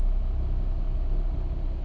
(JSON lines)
{"label": "anthrophony, boat engine", "recorder": "SoundTrap 300"}